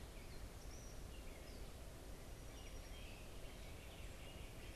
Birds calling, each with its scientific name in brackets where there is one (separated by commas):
unidentified bird